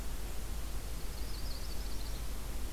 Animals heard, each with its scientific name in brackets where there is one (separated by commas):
Yellow-rumped Warbler (Setophaga coronata)